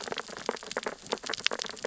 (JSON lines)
{"label": "biophony, sea urchins (Echinidae)", "recorder": "SoundTrap 600 or HydroMoth"}